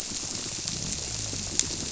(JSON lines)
{"label": "biophony", "recorder": "SoundTrap 300"}